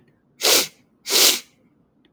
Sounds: Sniff